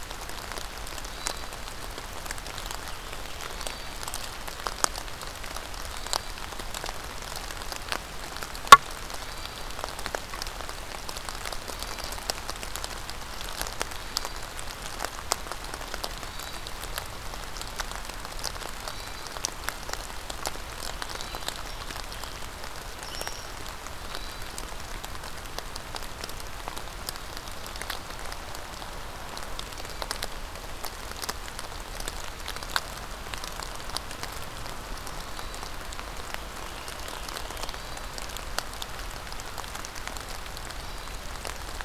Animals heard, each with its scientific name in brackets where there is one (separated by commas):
unknown mammal, Hermit Thrush (Catharus guttatus)